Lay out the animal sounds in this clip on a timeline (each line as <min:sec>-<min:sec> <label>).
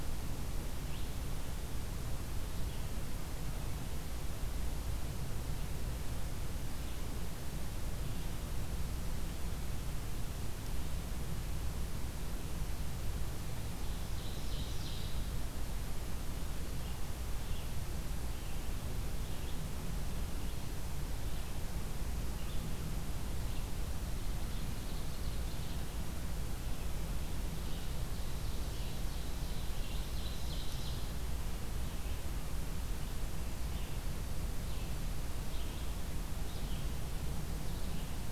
0:00.7-0:31.0 Red-eyed Vireo (Vireo olivaceus)
0:13.6-0:15.3 Ovenbird (Seiurus aurocapilla)
0:24.3-0:25.6 Blue-headed Vireo (Vireo solitarius)
0:28.0-0:31.2 Ovenbird (Seiurus aurocapilla)
0:32.0-0:38.3 Red-eyed Vireo (Vireo olivaceus)